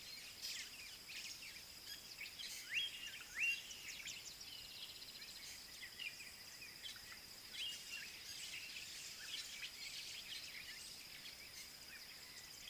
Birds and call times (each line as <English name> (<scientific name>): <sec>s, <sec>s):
Slate-colored Boubou (Laniarius funebris): 2.8s